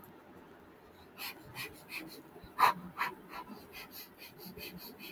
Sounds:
Sniff